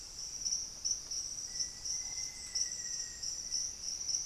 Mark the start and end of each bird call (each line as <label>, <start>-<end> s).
Ruddy Pigeon (Patagioenas subvinacea), 0.0-4.3 s
Black-faced Antthrush (Formicarius analis), 1.1-4.3 s